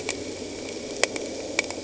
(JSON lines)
{"label": "anthrophony, boat engine", "recorder": "HydroMoth"}